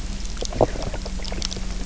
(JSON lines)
{"label": "biophony, knock croak", "recorder": "SoundTrap 300"}